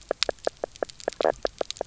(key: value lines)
label: biophony, knock croak
recorder: SoundTrap 300